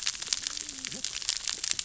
{"label": "biophony, cascading saw", "recorder": "SoundTrap 600 or HydroMoth"}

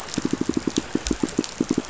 {"label": "biophony, pulse", "recorder": "SoundTrap 500"}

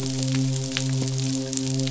{"label": "biophony, midshipman", "recorder": "SoundTrap 500"}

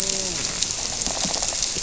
{"label": "biophony", "recorder": "SoundTrap 300"}
{"label": "biophony, grouper", "recorder": "SoundTrap 300"}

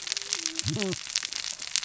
{"label": "biophony, cascading saw", "recorder": "SoundTrap 600 or HydroMoth"}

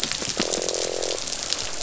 {"label": "biophony, croak", "recorder": "SoundTrap 500"}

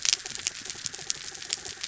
{"label": "anthrophony, mechanical", "recorder": "SoundTrap 300"}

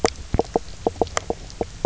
{"label": "biophony, knock croak", "recorder": "SoundTrap 300"}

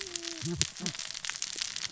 {"label": "biophony, cascading saw", "recorder": "SoundTrap 600 or HydroMoth"}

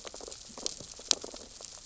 {"label": "biophony, sea urchins (Echinidae)", "recorder": "SoundTrap 600 or HydroMoth"}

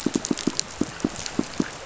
{"label": "biophony, pulse", "recorder": "SoundTrap 500"}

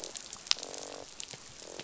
{"label": "biophony, croak", "recorder": "SoundTrap 500"}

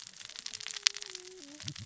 {"label": "biophony, cascading saw", "recorder": "SoundTrap 600 or HydroMoth"}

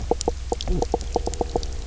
{"label": "biophony, knock croak", "recorder": "SoundTrap 300"}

